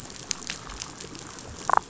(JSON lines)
{"label": "biophony, damselfish", "recorder": "SoundTrap 500"}